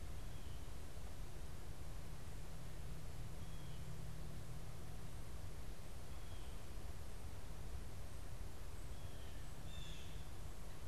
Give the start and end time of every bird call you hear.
[3.31, 6.71] Blue Jay (Cyanocitta cristata)
[8.81, 10.51] Blue Jay (Cyanocitta cristata)

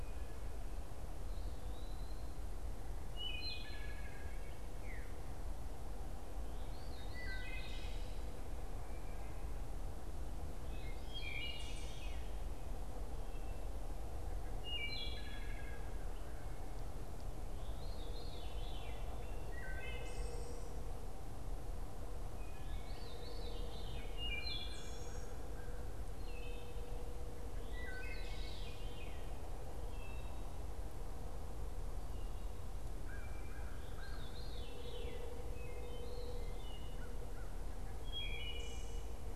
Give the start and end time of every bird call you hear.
[1.10, 2.30] Eastern Wood-Pewee (Contopus virens)
[3.00, 39.35] Wood Thrush (Hylocichla mustelina)
[17.40, 39.35] Veery (Catharus fuscescens)

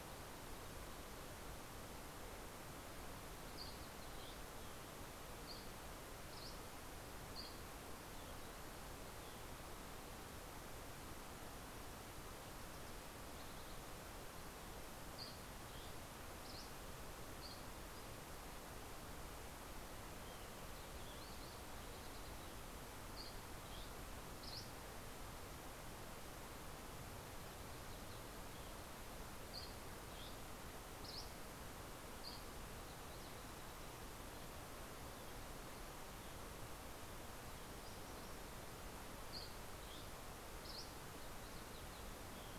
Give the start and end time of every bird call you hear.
[3.16, 7.86] Dusky Flycatcher (Empidonax oberholseri)
[14.76, 18.16] Dusky Flycatcher (Empidonax oberholseri)
[19.56, 22.96] Ruby-crowned Kinglet (Corthylio calendula)
[22.96, 25.16] Dusky Flycatcher (Empidonax oberholseri)
[29.26, 32.76] Dusky Flycatcher (Empidonax oberholseri)
[38.66, 40.96] Dusky Flycatcher (Empidonax oberholseri)

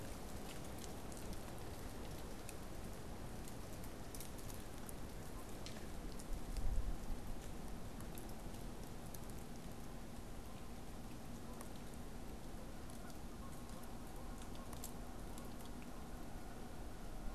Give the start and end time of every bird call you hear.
[12.61, 17.34] Canada Goose (Branta canadensis)

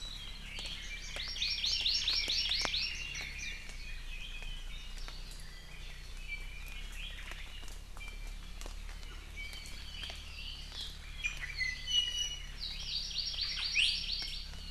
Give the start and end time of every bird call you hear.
[0.00, 5.00] Red-billed Leiothrix (Leiothrix lutea)
[1.10, 3.00] Hawaii Amakihi (Chlorodrepanis virens)
[6.30, 6.80] Iiwi (Drepanis coccinea)
[8.00, 8.60] Iiwi (Drepanis coccinea)
[9.40, 9.90] Iiwi (Drepanis coccinea)
[11.00, 12.50] Iiwi (Drepanis coccinea)
[12.60, 14.50] Hawaii Amakihi (Chlorodrepanis virens)
[13.70, 14.00] Iiwi (Drepanis coccinea)

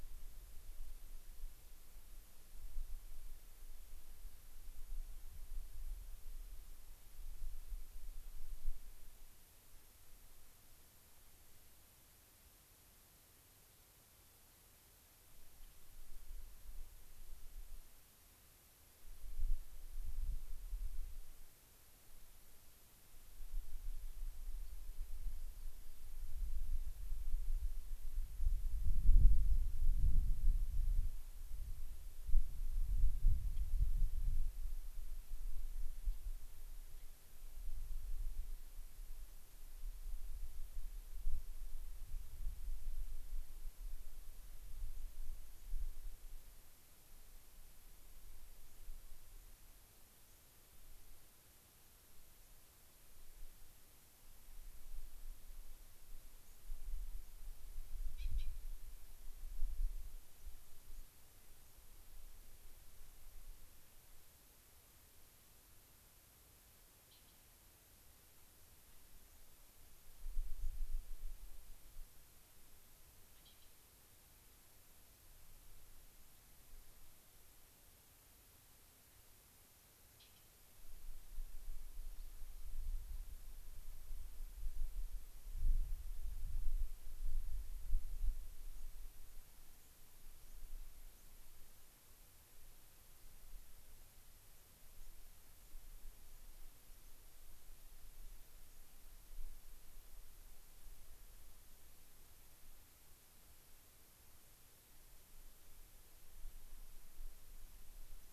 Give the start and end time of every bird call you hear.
[15.59, 15.79] Gray-crowned Rosy-Finch (Leucosticte tephrocotis)
[29.49, 29.59] unidentified bird
[33.49, 33.69] unidentified bird
[35.99, 36.19] Gray-crowned Rosy-Finch (Leucosticte tephrocotis)
[36.89, 37.09] Gray-crowned Rosy-Finch (Leucosticte tephrocotis)
[50.29, 50.49] unidentified bird
[56.39, 56.59] unidentified bird
[57.19, 57.39] unidentified bird
[60.19, 61.79] unidentified bird
[69.19, 69.49] unidentified bird
[70.49, 70.79] unidentified bird
[88.69, 88.89] unidentified bird
[89.19, 89.39] unidentified bird
[89.79, 89.99] unidentified bird
[90.39, 90.59] unidentified bird
[91.19, 91.29] unidentified bird
[94.49, 94.69] unidentified bird
[94.99, 95.09] unidentified bird
[95.59, 95.79] unidentified bird
[96.99, 97.19] unidentified bird
[98.59, 98.89] unidentified bird

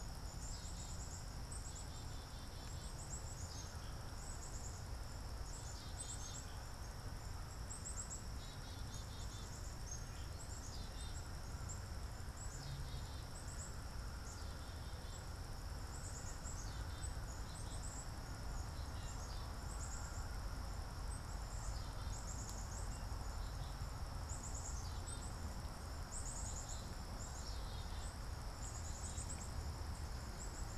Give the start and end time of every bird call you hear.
[0.00, 30.78] Black-capped Chickadee (Poecile atricapillus)
[18.56, 19.46] Blue Jay (Cyanocitta cristata)

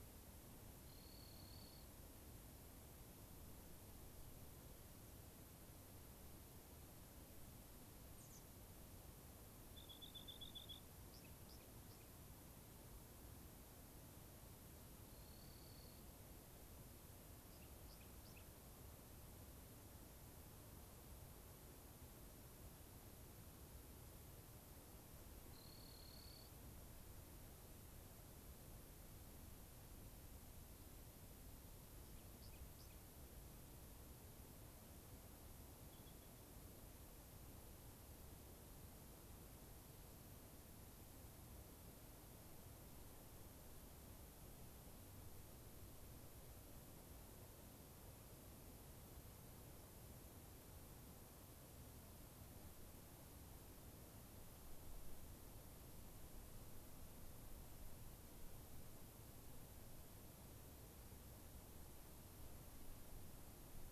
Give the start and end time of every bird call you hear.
[0.79, 1.89] Rock Wren (Salpinctes obsoletus)
[8.09, 8.39] unidentified bird
[9.69, 12.09] Rock Wren (Salpinctes obsoletus)
[15.09, 16.09] Rock Wren (Salpinctes obsoletus)
[17.39, 18.49] Rock Wren (Salpinctes obsoletus)
[25.49, 26.49] Rock Wren (Salpinctes obsoletus)
[31.99, 32.99] Rock Wren (Salpinctes obsoletus)
[35.89, 36.39] Rock Wren (Salpinctes obsoletus)

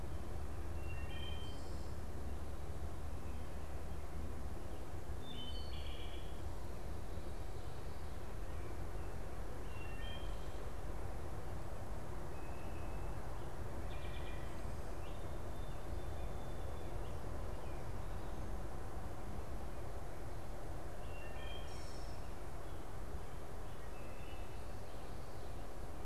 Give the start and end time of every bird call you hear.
[0.63, 1.83] Wood Thrush (Hylocichla mustelina)
[5.03, 6.43] Wood Thrush (Hylocichla mustelina)
[9.63, 10.53] Wood Thrush (Hylocichla mustelina)
[13.83, 14.63] Wood Thrush (Hylocichla mustelina)
[15.13, 17.13] Song Sparrow (Melospiza melodia)
[20.93, 22.33] Wood Thrush (Hylocichla mustelina)
[23.63, 24.73] Wood Thrush (Hylocichla mustelina)

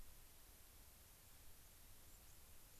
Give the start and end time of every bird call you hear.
[1.90, 2.40] White-crowned Sparrow (Zonotrichia leucophrys)

